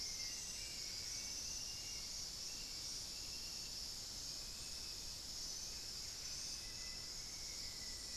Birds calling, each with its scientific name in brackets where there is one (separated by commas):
Black-faced Antthrush (Formicarius analis), Hauxwell's Thrush (Turdus hauxwelli), unidentified bird